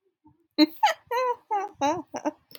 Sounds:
Laughter